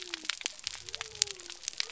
{"label": "biophony", "recorder": "SoundTrap 300"}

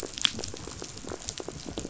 {"label": "biophony", "recorder": "SoundTrap 500"}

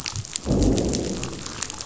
{"label": "biophony, growl", "recorder": "SoundTrap 500"}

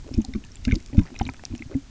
{"label": "geophony, waves", "recorder": "SoundTrap 300"}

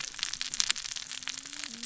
{"label": "biophony, cascading saw", "recorder": "SoundTrap 600 or HydroMoth"}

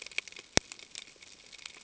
{"label": "ambient", "recorder": "HydroMoth"}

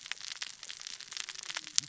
{"label": "biophony, cascading saw", "recorder": "SoundTrap 600 or HydroMoth"}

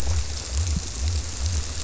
{"label": "biophony", "recorder": "SoundTrap 300"}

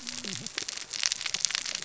{"label": "biophony, cascading saw", "recorder": "SoundTrap 600 or HydroMoth"}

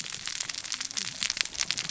{"label": "biophony, cascading saw", "recorder": "SoundTrap 600 or HydroMoth"}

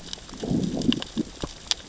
{"label": "biophony, growl", "recorder": "SoundTrap 600 or HydroMoth"}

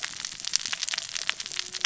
{"label": "biophony, cascading saw", "recorder": "SoundTrap 600 or HydroMoth"}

